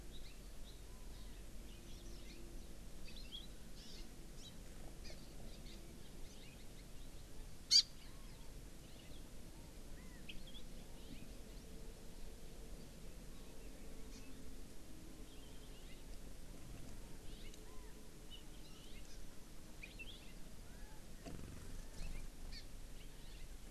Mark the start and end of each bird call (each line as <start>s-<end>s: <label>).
0.2s-0.5s: Hawaii Amakihi (Chlorodrepanis virens)
3.8s-4.1s: Hawaii Amakihi (Chlorodrepanis virens)
4.4s-4.6s: Hawaii Amakihi (Chlorodrepanis virens)
5.1s-5.2s: Hawaii Amakihi (Chlorodrepanis virens)
5.5s-5.8s: Hawaii Amakihi (Chlorodrepanis virens)
7.7s-7.9s: Hawaii Amakihi (Chlorodrepanis virens)
8.1s-8.6s: Chinese Hwamei (Garrulax canorus)
10.0s-10.3s: Chinese Hwamei (Garrulax canorus)
11.0s-11.3s: House Finch (Haemorhous mexicanus)
14.1s-14.2s: Hawaii Amakihi (Chlorodrepanis virens)
15.8s-16.0s: House Finch (Haemorhous mexicanus)
17.3s-17.5s: House Finch (Haemorhous mexicanus)
17.7s-18.1s: Chinese Hwamei (Garrulax canorus)
18.8s-19.1s: House Finch (Haemorhous mexicanus)
19.1s-19.2s: Hawaii Amakihi (Chlorodrepanis virens)
19.9s-20.4s: House Finch (Haemorhous mexicanus)
20.7s-21.1s: Chinese Hwamei (Garrulax canorus)
22.0s-22.3s: House Finch (Haemorhous mexicanus)
22.6s-22.7s: Hawaii Amakihi (Chlorodrepanis virens)
23.2s-23.5s: House Finch (Haemorhous mexicanus)